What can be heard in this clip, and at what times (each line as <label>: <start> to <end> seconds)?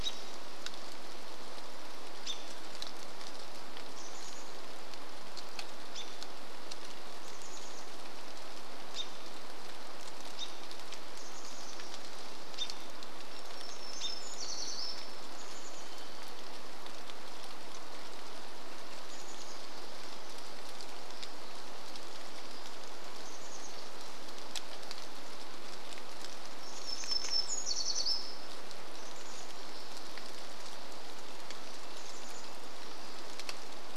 rain: 0 to 34 seconds
Chestnut-backed Chickadee call: 4 to 8 seconds
Chestnut-backed Chickadee call: 10 to 12 seconds
warbler song: 12 to 16 seconds
Chestnut-backed Chickadee call: 14 to 16 seconds
Chestnut-backed Chickadee call: 18 to 20 seconds
Chestnut-backed Chickadee call: 22 to 24 seconds
warbler song: 26 to 30 seconds
Chestnut-backed Chickadee call: 28 to 30 seconds
Chestnut-backed Chickadee call: 32 to 34 seconds